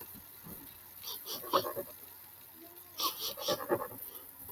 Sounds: Sniff